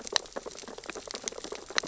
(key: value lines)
label: biophony, sea urchins (Echinidae)
recorder: SoundTrap 600 or HydroMoth